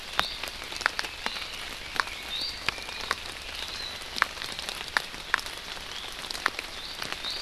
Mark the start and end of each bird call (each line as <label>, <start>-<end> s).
Iiwi (Drepanis coccinea), 0.1-0.5 s
Red-billed Leiothrix (Leiothrix lutea), 0.5-3.1 s
Iiwi (Drepanis coccinea), 2.3-2.7 s
Iiwi (Drepanis coccinea), 6.7-7.4 s